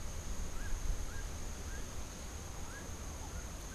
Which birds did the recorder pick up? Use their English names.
Long-tailed Manakin, Melodious Blackbird